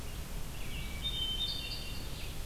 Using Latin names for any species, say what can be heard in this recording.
Vireo olivaceus, Catharus guttatus